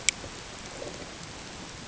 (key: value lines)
label: ambient
recorder: HydroMoth